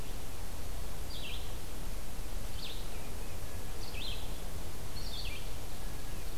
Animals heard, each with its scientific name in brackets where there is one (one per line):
Red-eyed Vireo (Vireo olivaceus)